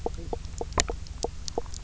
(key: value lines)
label: biophony, knock croak
recorder: SoundTrap 300